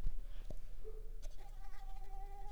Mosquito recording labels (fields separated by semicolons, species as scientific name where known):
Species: Mansonia uniformis; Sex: female; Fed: unfed; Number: one; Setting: cup